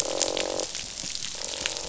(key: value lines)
label: biophony, croak
recorder: SoundTrap 500